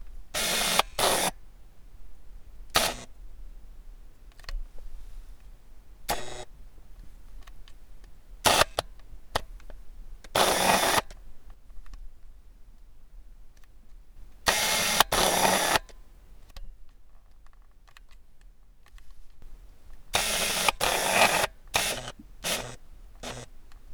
Is the knob turning on it's on?
yes